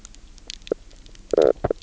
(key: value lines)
label: biophony, knock croak
recorder: SoundTrap 300